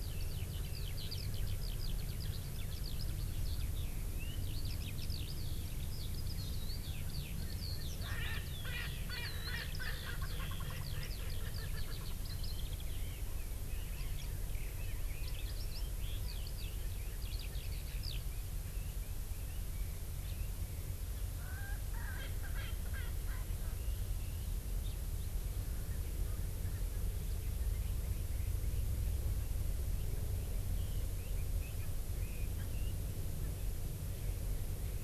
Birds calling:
Eurasian Skylark (Alauda arvensis), Red-billed Leiothrix (Leiothrix lutea), Erckel's Francolin (Pternistis erckelii)

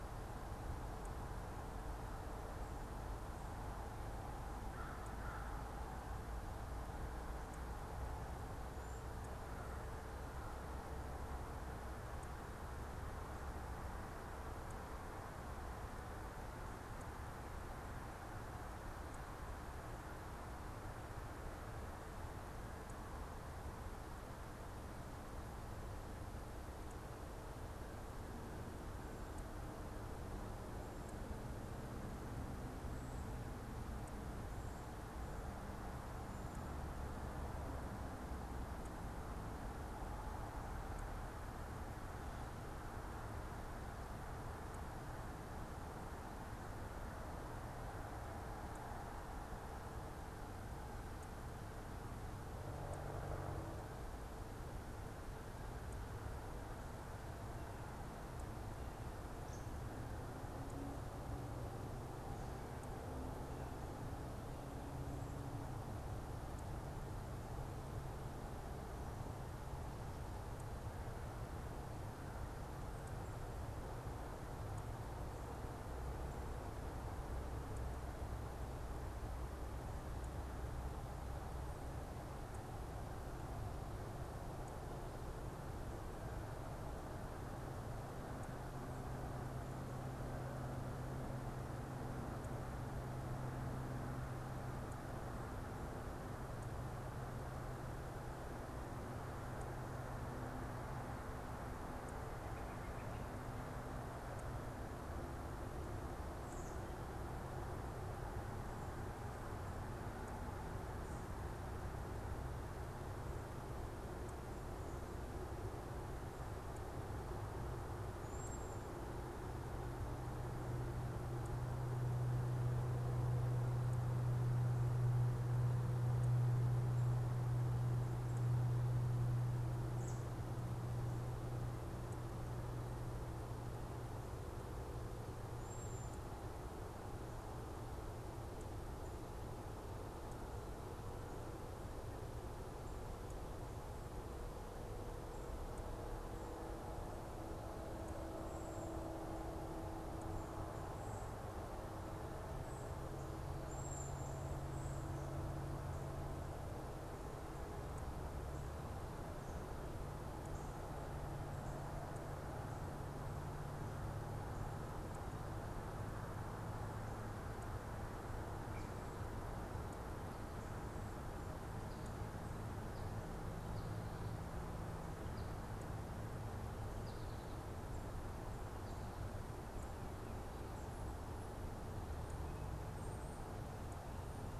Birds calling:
American Goldfinch (Spinus tristis), American Crow (Corvus brachyrhynchos), Cedar Waxwing (Bombycilla cedrorum)

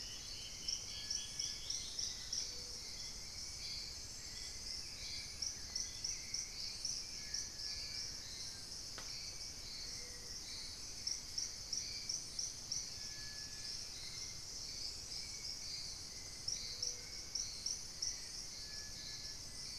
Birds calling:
Hauxwell's Thrush (Turdus hauxwelli), unidentified bird, Dusky-throated Antshrike (Thamnomanes ardesiacus)

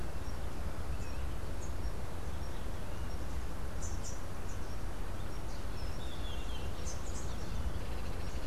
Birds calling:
Great-tailed Grackle (Quiscalus mexicanus), Rufous-capped Warbler (Basileuterus rufifrons)

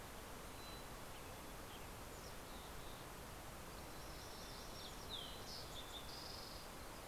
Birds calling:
Fox Sparrow (Passerella iliaca), Mountain Chickadee (Poecile gambeli), MacGillivray's Warbler (Geothlypis tolmiei), Western Tanager (Piranga ludoviciana)

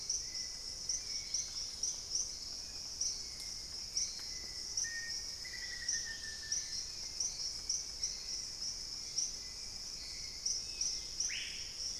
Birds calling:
Dusky-capped Greenlet (Pachysylvia hypoxantha), Screaming Piha (Lipaugus vociferans), Black-faced Antthrush (Formicarius analis), Hauxwell's Thrush (Turdus hauxwelli)

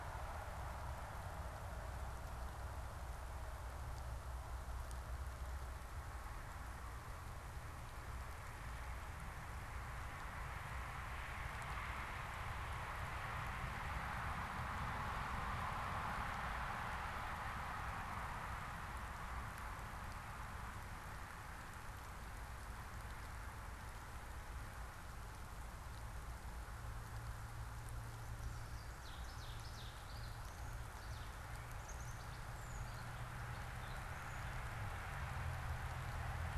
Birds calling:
Ovenbird (Seiurus aurocapilla)

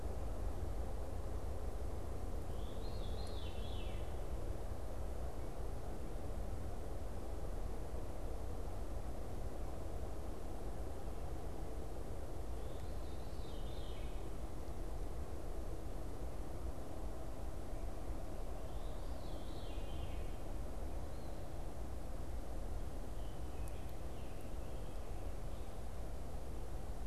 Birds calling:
Veery (Catharus fuscescens), Scarlet Tanager (Piranga olivacea)

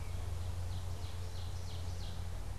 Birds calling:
Northern Cardinal (Cardinalis cardinalis)

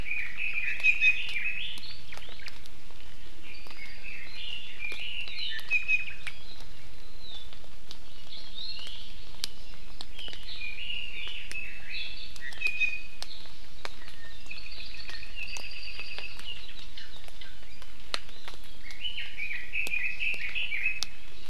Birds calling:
Red-billed Leiothrix (Leiothrix lutea), Hawaii Amakihi (Chlorodrepanis virens), Apapane (Himatione sanguinea), Iiwi (Drepanis coccinea)

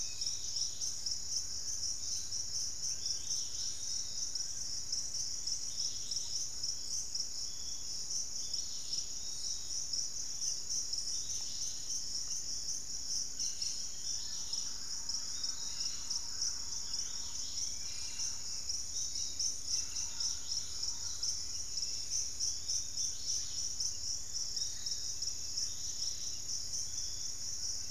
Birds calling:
Piratic Flycatcher (Legatus leucophaius), Fasciated Antshrike (Cymbilaimus lineatus), Thrush-like Wren (Campylorhynchus turdinus), Dusky-capped Flycatcher (Myiarchus tuberculifer), Dusky-capped Greenlet (Pachysylvia hypoxantha)

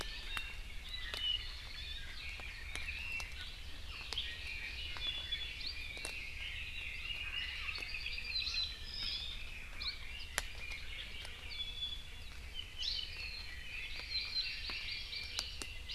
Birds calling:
Iiwi (Drepanis coccinea), Apapane (Himatione sanguinea), Hawaii Amakihi (Chlorodrepanis virens), Red-billed Leiothrix (Leiothrix lutea)

